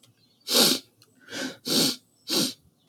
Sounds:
Sniff